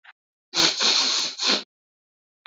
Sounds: Sniff